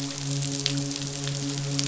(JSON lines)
{"label": "biophony, midshipman", "recorder": "SoundTrap 500"}